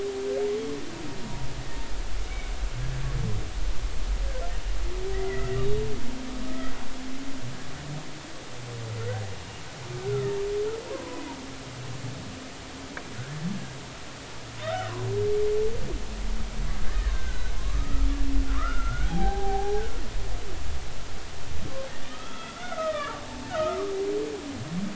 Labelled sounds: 5.1	5.6	humpback whale, 1.8 to 2.1 kHz
6.5	6.7	humpback whale, 1.2 to 1.4 kHz
10.0	10.3	humpback whale, 1.2 to 1.5 kHz
10.9	11.2	humpback whale, 0.93 to 1.1 kHz
14.6	14.9	humpback whale, 1.2 to 2.0 kHz
16.9	18.1	humpback whale, 1.0 to 1.9 kHz
18.4	19.8	humpback whale, 0.80 to 1.6 kHz
22.0	23.9	humpback whale, 1.0 to 3.6 kHz

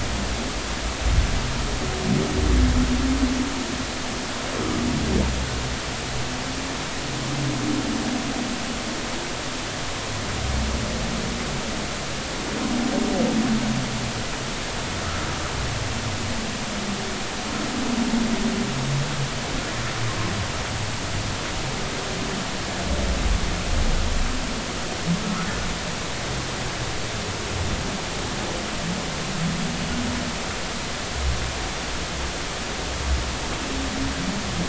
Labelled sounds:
25.2	25.5	humpback whale, 1.2 to 1.5 kHz

